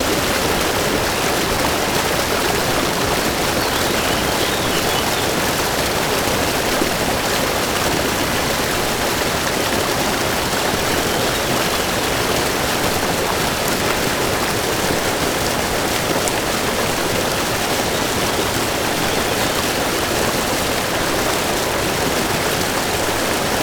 Is it raining heavily?
yes